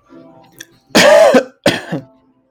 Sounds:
Cough